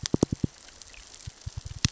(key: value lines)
label: biophony, knock
recorder: SoundTrap 600 or HydroMoth